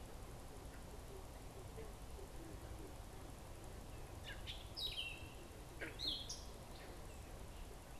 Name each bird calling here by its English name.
Gray Catbird